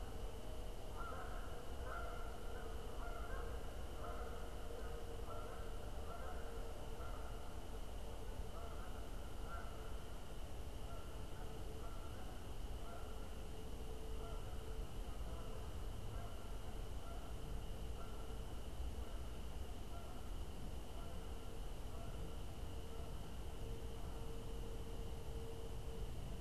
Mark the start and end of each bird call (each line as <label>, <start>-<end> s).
Canada Goose (Branta canadensis), 0.0-26.3 s